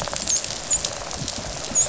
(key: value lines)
label: biophony, dolphin
recorder: SoundTrap 500

label: biophony
recorder: SoundTrap 500